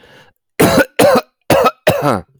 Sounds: Cough